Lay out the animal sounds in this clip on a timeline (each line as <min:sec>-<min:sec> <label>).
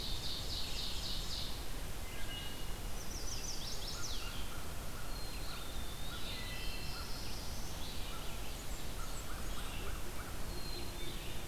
0:00.0-0:01.6 Ovenbird (Seiurus aurocapilla)
0:00.0-0:11.5 Red-eyed Vireo (Vireo olivaceus)
0:02.0-0:02.8 Wood Thrush (Hylocichla mustelina)
0:02.9-0:04.5 Chestnut-sided Warbler (Setophaga pensylvanica)
0:03.9-0:11.0 American Crow (Corvus brachyrhynchos)
0:05.0-0:05.9 Black-capped Chickadee (Poecile atricapillus)
0:05.6-0:06.5 Eastern Wood-Pewee (Contopus virens)
0:05.8-0:07.9 Black-throated Blue Warbler (Setophaga caerulescens)
0:06.2-0:07.0 Wood Thrush (Hylocichla mustelina)
0:08.3-0:09.8 Blackburnian Warbler (Setophaga fusca)
0:10.3-0:11.5 Black-capped Chickadee (Poecile atricapillus)